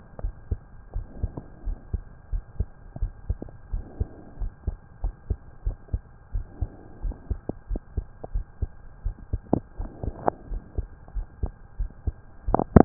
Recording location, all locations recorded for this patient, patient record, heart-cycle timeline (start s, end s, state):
pulmonary valve (PV)
aortic valve (AV)+pulmonary valve (PV)+tricuspid valve (TV)+mitral valve (MV)
#Age: Child
#Sex: Male
#Height: 132.0 cm
#Weight: 50.6 kg
#Pregnancy status: False
#Murmur: Absent
#Murmur locations: nan
#Most audible location: nan
#Systolic murmur timing: nan
#Systolic murmur shape: nan
#Systolic murmur grading: nan
#Systolic murmur pitch: nan
#Systolic murmur quality: nan
#Diastolic murmur timing: nan
#Diastolic murmur shape: nan
#Diastolic murmur grading: nan
#Diastolic murmur pitch: nan
#Diastolic murmur quality: nan
#Outcome: Normal
#Campaign: 2015 screening campaign
0.00	0.20	unannotated
0.20	0.34	S1
0.34	0.48	systole
0.48	0.62	S2
0.62	0.92	diastole
0.92	1.06	S1
1.06	1.20	systole
1.20	1.34	S2
1.34	1.64	diastole
1.64	1.78	S1
1.78	1.90	systole
1.90	2.04	S2
2.04	2.30	diastole
2.30	2.44	S1
2.44	2.56	systole
2.56	2.70	S2
2.70	2.99	diastole
2.99	3.14	S1
3.14	3.26	systole
3.26	3.38	S2
3.38	3.70	diastole
3.70	3.84	S1
3.84	3.96	systole
3.96	4.08	S2
4.08	4.40	diastole
4.40	4.52	S1
4.52	4.66	systole
4.66	4.78	S2
4.78	5.00	diastole
5.00	5.14	S1
5.14	5.26	systole
5.26	5.38	S2
5.38	5.64	diastole
5.64	5.78	S1
5.78	5.90	systole
5.90	6.04	S2
6.04	6.31	diastole
6.31	6.46	S1
6.46	6.58	systole
6.58	6.70	S2
6.70	7.00	diastole
7.00	7.16	S1
7.16	7.28	systole
7.28	7.40	S2
7.40	7.67	diastole
7.67	7.82	S1
7.82	7.94	systole
7.94	8.06	S2
8.06	8.32	diastole
8.32	8.46	S1
8.46	8.58	systole
8.58	8.72	S2
8.72	9.01	diastole
9.01	9.16	S1
9.16	9.29	systole
9.29	9.44	S2
9.44	9.75	diastole
9.75	9.92	S1
9.92	10.02	systole
10.02	10.14	S2
10.14	10.47	diastole
10.47	10.64	S1
10.64	10.75	systole
10.75	10.90	S2
10.90	11.13	diastole
11.13	11.28	S1
11.28	11.40	systole
11.40	11.54	S2
11.54	11.75	diastole
11.75	11.92	S1
11.92	12.04	systole
12.04	12.18	S2
12.18	12.45	diastole
12.45	12.57	S1
12.57	12.85	unannotated